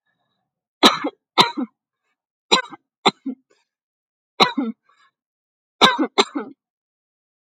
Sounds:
Cough